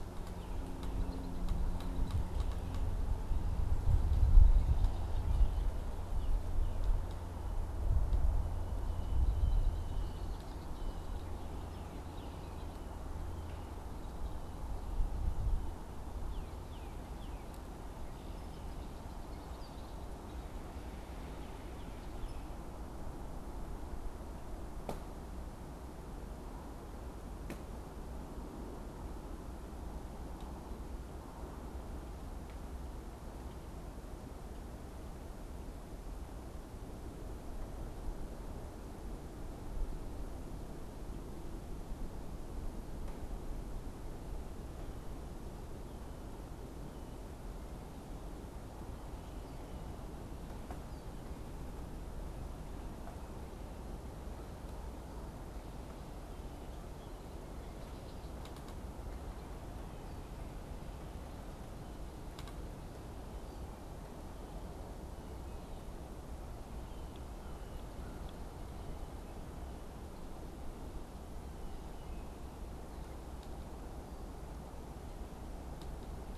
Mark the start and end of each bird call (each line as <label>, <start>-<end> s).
Red-winged Blackbird (Agelaius phoeniceus), 0.5-3.0 s
Red-winged Blackbird (Agelaius phoeniceus), 8.7-13.0 s
Northern Cardinal (Cardinalis cardinalis), 11.7-12.5 s
Northern Cardinal (Cardinalis cardinalis), 16.0-17.6 s
Red-winged Blackbird (Agelaius phoeniceus), 18.0-20.8 s
Northern Cardinal (Cardinalis cardinalis), 21.3-22.8 s
Red-winged Blackbird (Agelaius phoeniceus), 66.5-68.2 s
American Crow (Corvus brachyrhynchos), 67.4-68.3 s